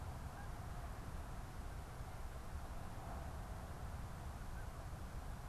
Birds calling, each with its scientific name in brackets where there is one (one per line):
Canada Goose (Branta canadensis)